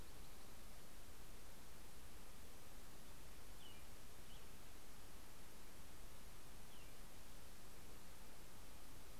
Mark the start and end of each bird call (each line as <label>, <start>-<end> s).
American Robin (Turdus migratorius), 2.5-9.2 s